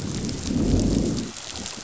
{"label": "biophony, growl", "recorder": "SoundTrap 500"}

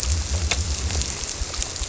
{"label": "biophony", "recorder": "SoundTrap 300"}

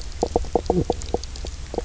{"label": "biophony, knock croak", "recorder": "SoundTrap 300"}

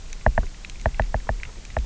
{"label": "biophony, knock", "recorder": "SoundTrap 300"}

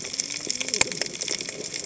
{"label": "biophony, cascading saw", "recorder": "HydroMoth"}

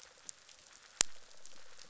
{"label": "biophony, rattle response", "recorder": "SoundTrap 500"}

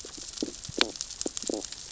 {"label": "biophony, stridulation", "recorder": "SoundTrap 600 or HydroMoth"}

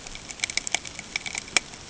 {"label": "ambient", "recorder": "HydroMoth"}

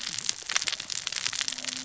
{"label": "biophony, cascading saw", "recorder": "SoundTrap 600 or HydroMoth"}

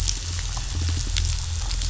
{"label": "biophony", "recorder": "SoundTrap 500"}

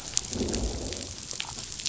{"label": "biophony, growl", "recorder": "SoundTrap 500"}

